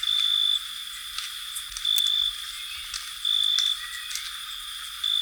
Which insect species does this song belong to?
Oecanthus pellucens